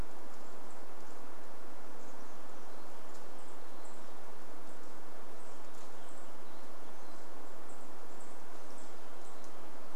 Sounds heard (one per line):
unidentified sound
Chestnut-backed Chickadee call
Red-breasted Nuthatch song
unidentified bird chip note